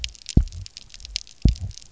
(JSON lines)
{"label": "biophony, double pulse", "recorder": "SoundTrap 300"}